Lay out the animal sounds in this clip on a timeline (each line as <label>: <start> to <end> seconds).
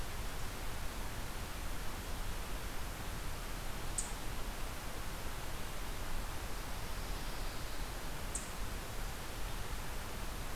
Eastern Chipmunk (Tamias striatus): 3.9 to 8.5 seconds
Pine Warbler (Setophaga pinus): 6.6 to 8.0 seconds